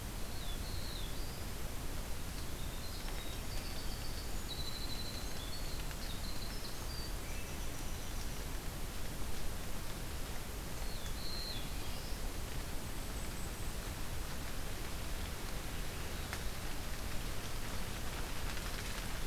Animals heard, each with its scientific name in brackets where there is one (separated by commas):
Black-throated Blue Warbler (Setophaga caerulescens), Winter Wren (Troglodytes hiemalis), Golden-crowned Kinglet (Regulus satrapa)